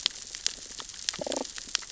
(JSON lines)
{"label": "biophony, damselfish", "recorder": "SoundTrap 600 or HydroMoth"}